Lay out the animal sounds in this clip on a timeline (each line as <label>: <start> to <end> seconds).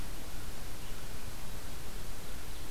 Ovenbird (Seiurus aurocapilla): 2.0 to 2.7 seconds